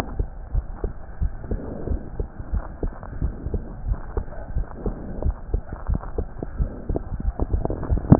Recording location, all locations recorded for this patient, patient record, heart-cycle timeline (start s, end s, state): aortic valve (AV)
aortic valve (AV)+pulmonary valve (PV)+tricuspid valve (TV)+mitral valve (MV)
#Age: Child
#Sex: Male
#Height: 123.0 cm
#Weight: 25.6 kg
#Pregnancy status: False
#Murmur: Absent
#Murmur locations: nan
#Most audible location: nan
#Systolic murmur timing: nan
#Systolic murmur shape: nan
#Systolic murmur grading: nan
#Systolic murmur pitch: nan
#Systolic murmur quality: nan
#Diastolic murmur timing: nan
#Diastolic murmur shape: nan
#Diastolic murmur grading: nan
#Diastolic murmur pitch: nan
#Diastolic murmur quality: nan
#Outcome: Normal
#Campaign: 2015 screening campaign
0.00	0.27	unannotated
0.27	0.30	S2
0.30	0.52	diastole
0.52	0.68	S1
0.68	0.80	systole
0.80	0.90	S2
0.90	1.18	diastole
1.18	1.32	S1
1.32	1.48	systole
1.48	1.62	S2
1.62	1.88	diastole
1.88	2.02	S1
2.02	2.16	systole
2.16	2.26	S2
2.26	2.50	diastole
2.50	2.64	S1
2.64	2.80	systole
2.80	2.94	S2
2.94	3.18	diastole
3.18	3.36	S1
3.36	3.51	systole
3.51	3.62	S2
3.62	3.83	diastole
3.83	3.98	S1
3.98	4.14	systole
4.14	4.24	S2
4.24	4.52	diastole
4.52	4.68	S1
4.68	4.82	systole
4.82	4.94	S2
4.94	5.21	diastole
5.21	5.36	S1
5.36	5.49	systole
5.49	5.66	S2
5.66	5.86	diastole
5.86	6.04	S1
6.04	6.14	systole
6.14	6.28	S2
6.28	6.56	diastole
6.56	6.70	S1
6.70	6.88	systole
6.88	7.02	S2
7.02	7.09	diastole
7.09	8.19	unannotated